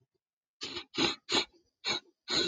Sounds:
Sniff